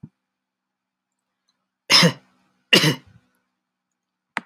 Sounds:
Cough